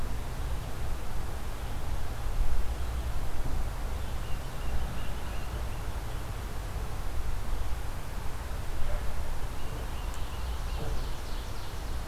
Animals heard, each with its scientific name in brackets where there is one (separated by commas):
Tufted Titmouse (Baeolophus bicolor), Ovenbird (Seiurus aurocapilla)